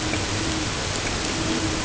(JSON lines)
{"label": "ambient", "recorder": "HydroMoth"}